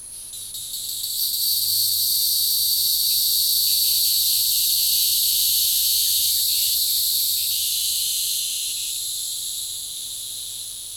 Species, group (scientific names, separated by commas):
Neocicada hieroglyphica, Cicadidae